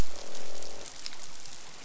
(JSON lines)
{"label": "biophony, croak", "recorder": "SoundTrap 500"}